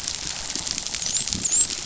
{"label": "biophony, dolphin", "recorder": "SoundTrap 500"}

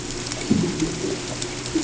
{"label": "ambient", "recorder": "HydroMoth"}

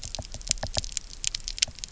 {"label": "biophony, knock", "recorder": "SoundTrap 300"}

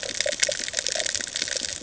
{"label": "ambient", "recorder": "HydroMoth"}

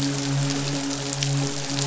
{"label": "biophony, midshipman", "recorder": "SoundTrap 500"}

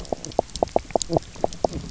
{"label": "biophony, knock croak", "recorder": "SoundTrap 300"}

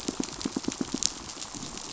{"label": "biophony, pulse", "recorder": "SoundTrap 500"}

